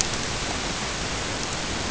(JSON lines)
{"label": "ambient", "recorder": "HydroMoth"}